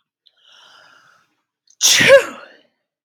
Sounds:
Sneeze